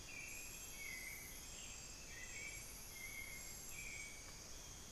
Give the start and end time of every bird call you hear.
[0.00, 4.91] Hauxwell's Thrush (Turdus hauxwelli)
[1.41, 1.91] unidentified bird

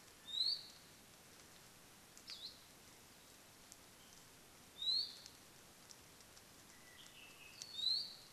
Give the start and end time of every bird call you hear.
[0.20, 0.80] Iiwi (Drepanis coccinea)
[2.20, 2.60] Hawaii Akepa (Loxops coccineus)
[4.70, 5.30] Iiwi (Drepanis coccinea)
[6.60, 8.00] Apapane (Himatione sanguinea)
[7.70, 8.30] Iiwi (Drepanis coccinea)

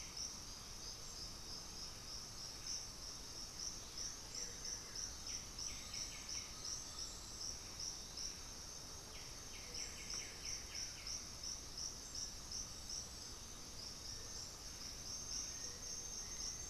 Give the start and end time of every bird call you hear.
[0.00, 5.70] Blue-gray Saltator (Saltator coerulescens)
[4.90, 11.60] White-winged Becard (Pachyramphus polychopterus)
[5.70, 16.70] Cinereous Tinamou (Crypturellus cinereus)
[15.20, 16.70] unidentified bird

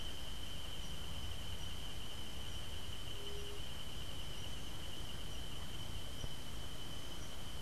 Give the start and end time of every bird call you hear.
[3.11, 3.61] White-tipped Dove (Leptotila verreauxi)

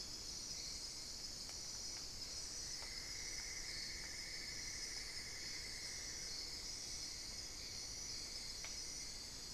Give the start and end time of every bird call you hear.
[2.10, 9.50] Cinnamon-throated Woodcreeper (Dendrexetastes rufigula)

